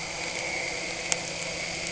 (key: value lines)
label: anthrophony, boat engine
recorder: HydroMoth